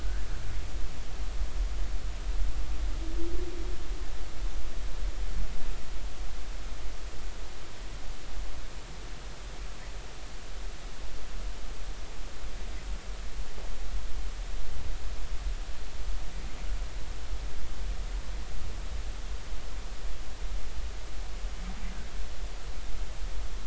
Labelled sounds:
0.0	0.2	humpback whale, 1.4 to 1.8 kHz

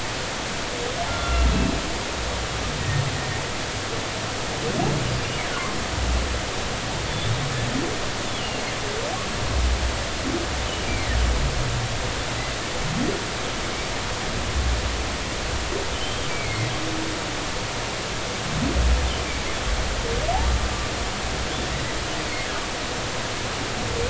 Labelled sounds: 1.1	1.5	humpback whale, 1.3 to 1.4 kHz
7.1	7.4	humpback whale, 3.4 to 3.8 kHz
10.8	11.1	humpback whale, 2.1 to 2.4 kHz
15.9	16.7	humpback whale, 2.0 to 3.3 kHz

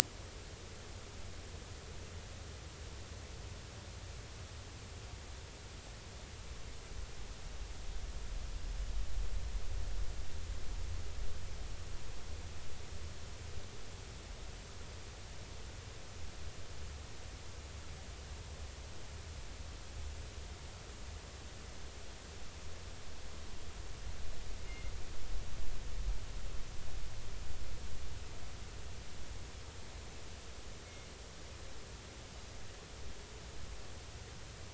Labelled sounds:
24.7	24.9	killer whale, northern resident, G clan, call N24ii, 2.0 to 2.2 kHz

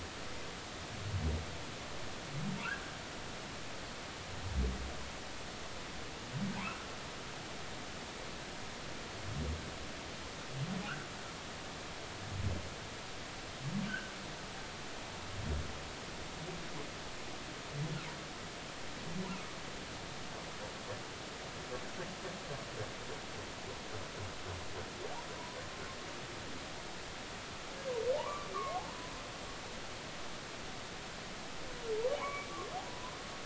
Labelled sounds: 13.9	14.1	humpback whale, 1.4 to 1.7 kHz
28.1	29.1	humpback whale, 0.80 to 1.2 kHz
32.1	33.1	humpback whale, 0.93 to 2.3 kHz

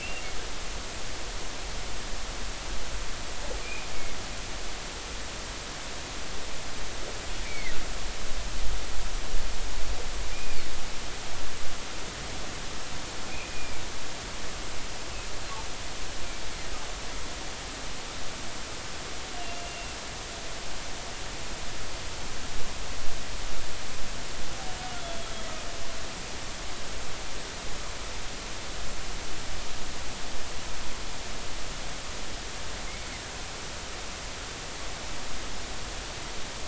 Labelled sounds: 0.0	0.3	humpback whale, 2.5 to 2.8 kHz
3.6	4.2	humpback whale, 2.0 to 2.6 kHz
7.4	7.8	humpback whale, 1.8 to 2.5 kHz
10.3	10.7	humpback whale, 2.3 to 2.5 kHz
13.3	13.8	humpback whale, 2.1 to 2.7 kHz
19.4	20.0	humpback whale, 2.6 to 2.8 kHz

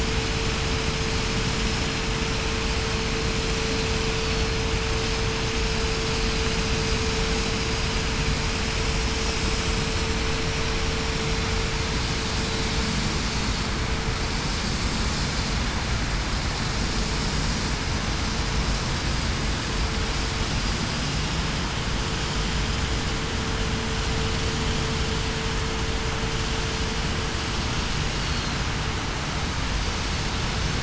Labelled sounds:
4.1	4.5	killer whale, southern resident, 4.2 to 4.6 kHz
28.2	28.6	killer whale, southern resident, 4.0 to 4.6 kHz

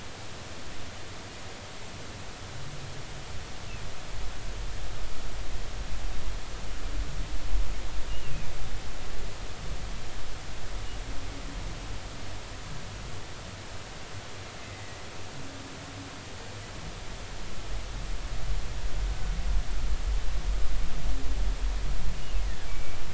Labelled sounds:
8.1	8.3	humpback whale, 2.7 to 3.0 kHz
14.7	14.9	humpback whale, 1.9 to 2.1 kHz
22.2	23.0	humpback whale, 2.2 to 2.9 kHz

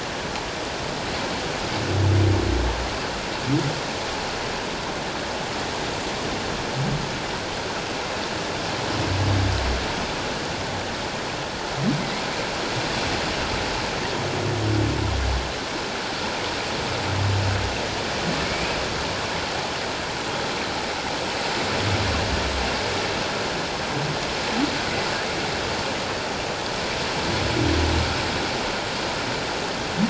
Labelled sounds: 18.5	18.8	humpback whale, 2.1 to 2.7 kHz

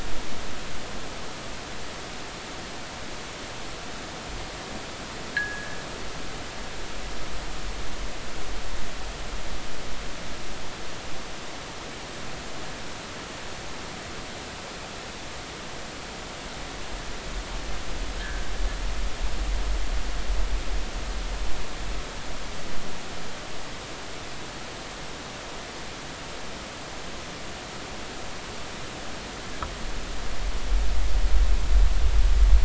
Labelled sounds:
5.3	5.8	fishing gear, 1.5 to 1.9 kHz
18.2	18.4	fishing gear, 1.5 to 1.8 kHz

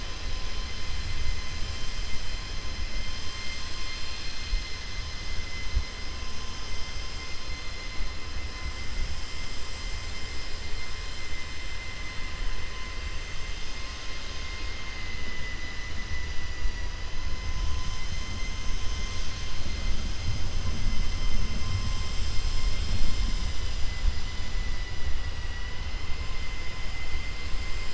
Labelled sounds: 16.0	16.9	vessel noise, 0.98 to 3.0 kHz
24.2	25.1	vessel noise, 1.0 to 3.0 kHz

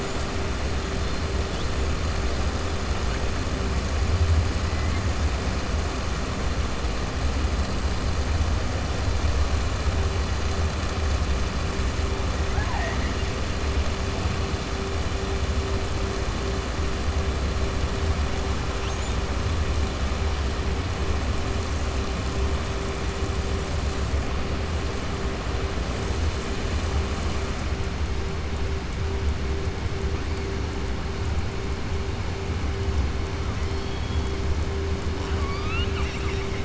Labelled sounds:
12.4	13.2	killer whale, southern resident, 0.66 to 2.8 kHz
33.6	34.3	killer whale, southern resident, 3.2 to 5.4 kHz
35.1	36.6	killer whale, southern resident, 1.0 to 7.6 kHz

